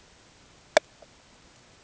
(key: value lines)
label: ambient
recorder: HydroMoth